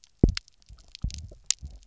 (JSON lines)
{"label": "biophony, double pulse", "recorder": "SoundTrap 300"}